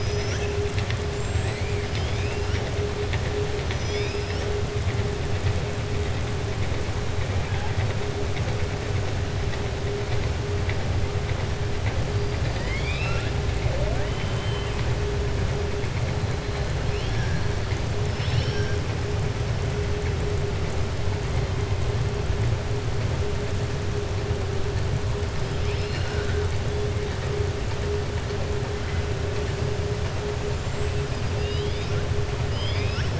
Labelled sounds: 12.3	13.3	killer whale, southern resident, 1.2 to 5.7 kHz
14.0	14.8	killer whale, southern resident, 2.1 to 3.2 kHz
25.4	26.4	killer whale, southern resident, 1.4 to 5.6 kHz
30.5	32.0	killer whale, southern resident, 2.4 to 8.0 kHz
32.4	33.1	killer whale, southern resident, 1.4 to 5.6 kHz

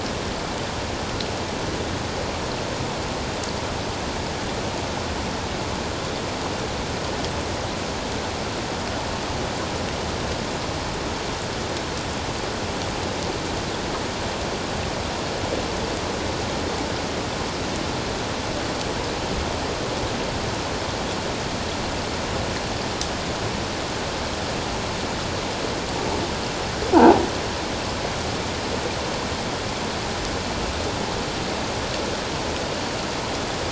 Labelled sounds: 26.9	27.2	croaking sound likely from a nearby submerged object, 0.78 to 1.0 kHz

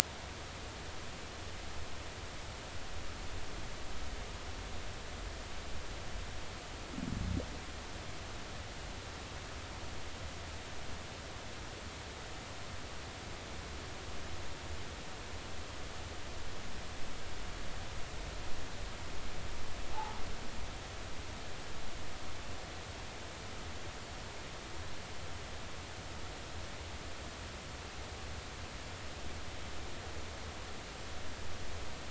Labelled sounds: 19.9	20.2	humpback whale, 0.80 to 0.99 kHz

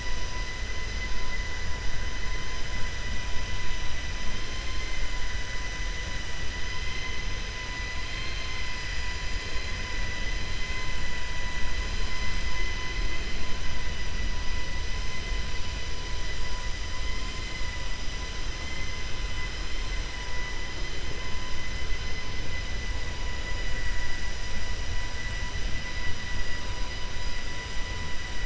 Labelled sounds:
8.0	8.6	vessel noise, 1.3 to 4.2 kHz

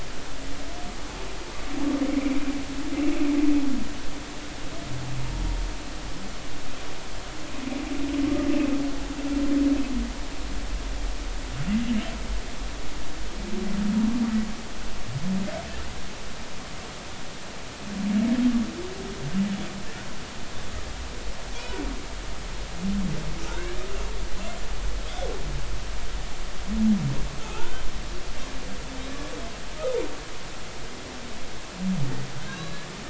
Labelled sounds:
2.1	2.4	humpback whale, 2.0 to 2.4 kHz
25.1	25.3	humpback whale, 3.1 to 3.7 kHz
27.4	27.8	humpback whale, 0.80 to 1.6 kHz
32.5	32.9	humpback whale, 0.99 to 4.0 kHz

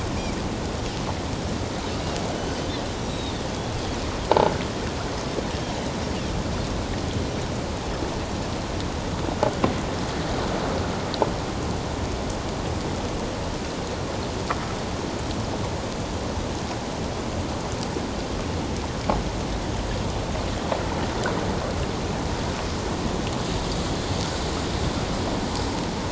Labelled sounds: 3.0	3.5	Pacific white-sided dolphin, 3.3 to 3.9 kHz

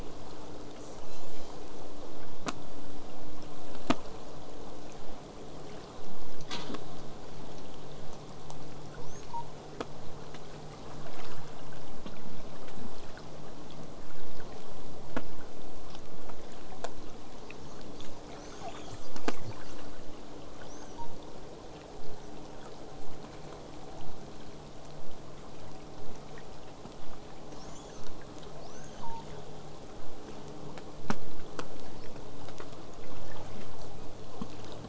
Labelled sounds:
0.8	2.0	killer whale, southern resident, call S10, 2.2 to 8.0 kHz
11.0	16.0	vessel noise, 0 to 8.0 kHz
17.9	20.0	killer whale, southern resident, call S10, 0.27 to 8.0 kHz
28.6	29.3	killer whale, southern resident, L pod, call S02iii, 0.74 to 6.6 kHz

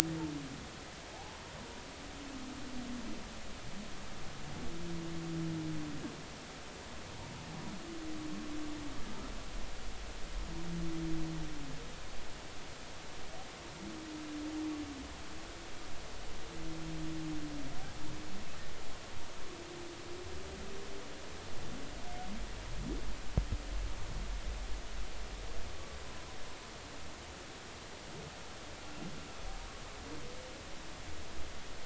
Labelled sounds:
1.1	1.5	humpback whale, 0.80 to 0.99 kHz

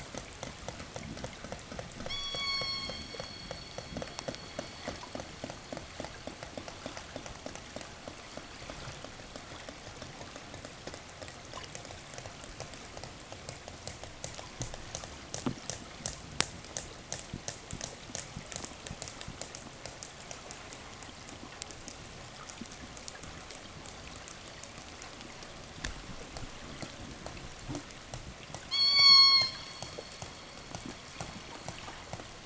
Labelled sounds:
1.9	3.9	killer whale, southern resident, call S16, 0 to 8.0 kHz
10.6	20.9	killer whale, 4.3 to 8.0 kHz
28.2	30.3	killer whale, southern resident, 0.92 to 8.0 kHz

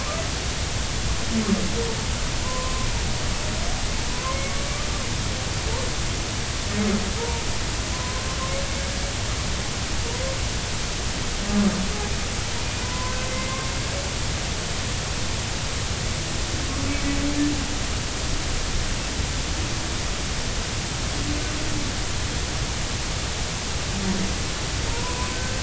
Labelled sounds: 2.4	2.9	humpback whale, 0.93 to 1.1 kHz
4.1	4.5	humpback whale, 0.96 to 2.3 kHz
7.2	7.4	humpback whale, 0.86 to 0.99 kHz
7.9	8.3	humpback whale, 0.96 to 1.1 kHz
12.6	13.6	humpback whale, 0.96 to 2.5 kHz
24.9	25.6	humpback whale, 0.90 to 1.6 kHz

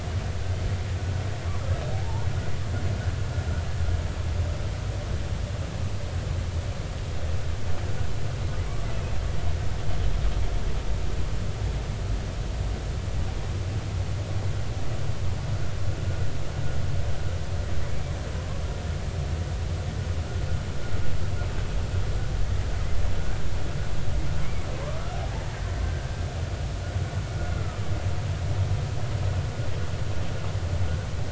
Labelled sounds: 1.9	2.3	killer whale, 0.80 to 1.0 kHz
17.8	18.1	killer whale, 2.1 to 2.4 kHz
25.1	25.4	killer whale, 0.80 to 0.93 kHz
25.8	26.1	killer whale, 1.5 to 1.6 kHz
27.6	27.8	killer whale, 1.2 to 1.4 kHz

